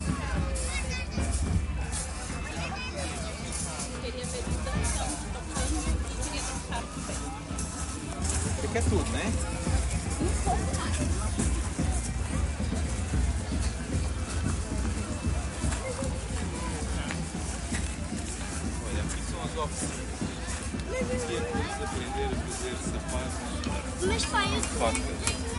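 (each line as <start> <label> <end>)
0.0 Low sounds of a parade with music and a crowd walking in the distance. 25.6
3.7 People speaking outdoors in the distance. 10.0
18.6 People speaking outdoors in the distance. 25.6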